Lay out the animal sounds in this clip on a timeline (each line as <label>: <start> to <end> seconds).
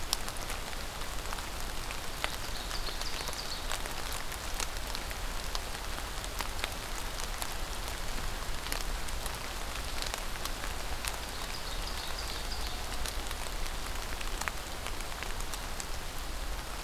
Ovenbird (Seiurus aurocapilla): 2.0 to 3.8 seconds
Ovenbird (Seiurus aurocapilla): 11.2 to 12.8 seconds